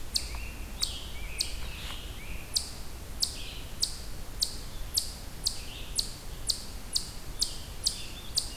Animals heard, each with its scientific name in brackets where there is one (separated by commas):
Eastern Chipmunk (Tamias striatus), Scarlet Tanager (Piranga olivacea)